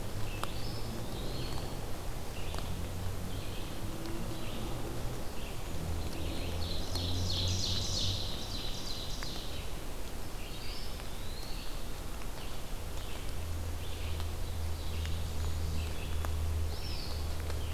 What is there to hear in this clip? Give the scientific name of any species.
Vireo olivaceus, Contopus virens, Seiurus aurocapilla, Setophaga fusca